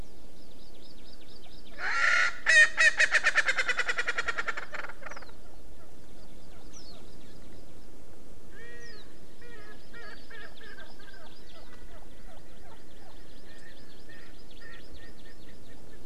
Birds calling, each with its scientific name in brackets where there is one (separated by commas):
Warbling White-eye (Zosterops japonicus), Hawaii Amakihi (Chlorodrepanis virens), Erckel's Francolin (Pternistis erckelii)